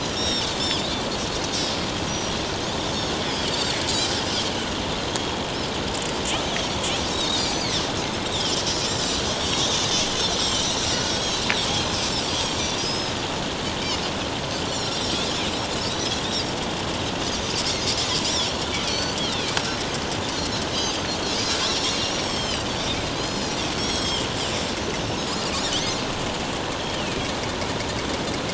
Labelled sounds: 2.1	2.4	Pacific white-sided dolphin, 5.6 to 5.9 kHz
5.1	5.4	Pacific white-sided dolphin, 3.2 to 3.3 kHz
7.1	7.6	Pacific white-sided dolphin, 3.5 to 7.2 kHz
8.3	8.5	Pacific white-sided dolphin, 2.8 to 3.9 kHz
9.2	9.7	Pacific white-sided dolphin, 5.3 to 7.9 kHz
10.4	11.4	Pacific white-sided dolphin, 3.0 to 7.9 kHz
11.8	13.1	Pacific white-sided dolphin, 4.8 to 6.5 kHz
14.7	15.0	Pacific white-sided dolphin, 5.2 to 6.0 kHz
18.2	18.5	Pacific white-sided dolphin, 5.0 to 6.1 kHz
18.9	19.2	Pacific white-sided dolphin, 4.3 to 6.1 kHz
20.3	21.4	Pacific white-sided dolphin, 4.0 to 5.0 kHz
21.6	22.8	Pacific white-sided dolphin, 2.8 to 7.9 kHz
23.1	24.3	Pacific white-sided dolphin, 2.8 to 7.9 kHz
25.7	26.0	Pacific white-sided dolphin, 5.8 to 6.5 kHz
26.8	27.2	Pacific white-sided dolphin, 2.4 to 3.3 kHz

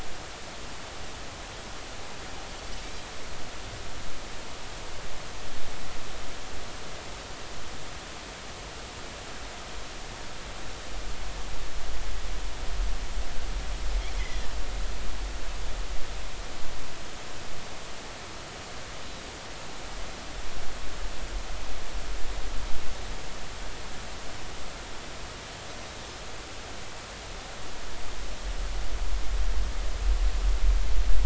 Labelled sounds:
14.1	14.4	Pacific white-sided dolphin, 1.9 to 2.3 kHz

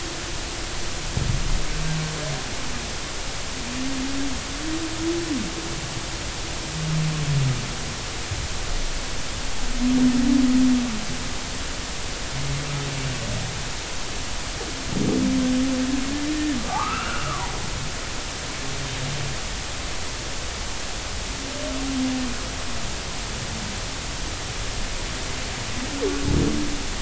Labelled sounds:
16.6	17.5	humpback whale, 0.80 to 2.9 kHz

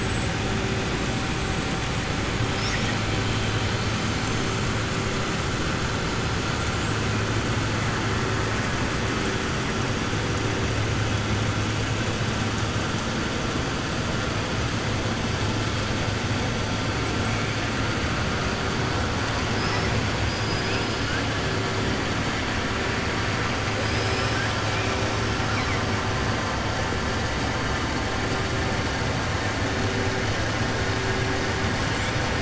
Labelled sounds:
20.2	21.1	killer whale, southern resident, 4.3 to 5.6 kHz
23.8	24.5	killer whale, southern resident, 4.1 to 6.2 kHz

